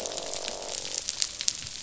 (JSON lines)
{"label": "biophony, croak", "recorder": "SoundTrap 500"}